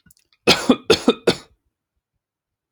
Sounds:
Cough